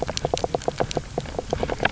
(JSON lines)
{"label": "biophony, knock croak", "recorder": "SoundTrap 300"}